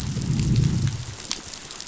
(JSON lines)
{"label": "biophony, growl", "recorder": "SoundTrap 500"}